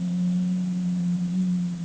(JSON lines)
{"label": "anthrophony, boat engine", "recorder": "HydroMoth"}